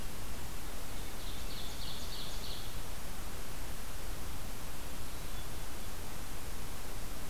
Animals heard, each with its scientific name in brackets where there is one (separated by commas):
Ovenbird (Seiurus aurocapilla)